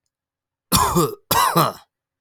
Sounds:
Cough